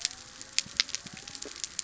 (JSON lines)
{"label": "biophony", "recorder": "SoundTrap 300"}